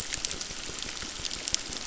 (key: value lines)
label: biophony, crackle
recorder: SoundTrap 600